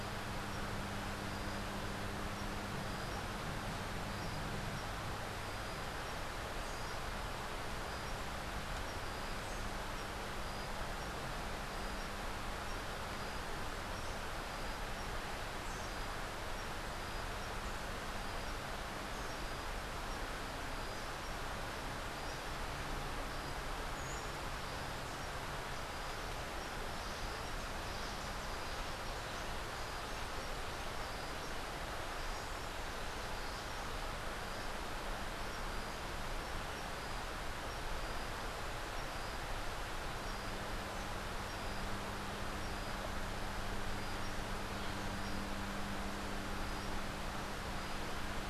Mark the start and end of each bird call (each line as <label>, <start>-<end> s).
Buff-throated Saltator (Saltator maximus), 23.8-24.5 s